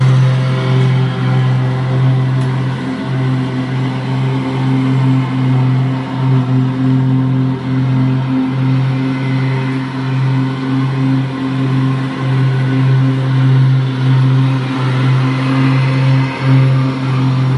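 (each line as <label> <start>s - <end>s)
A lawnmower is running loudly in the distance. 0.0s - 17.6s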